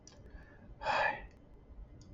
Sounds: Sigh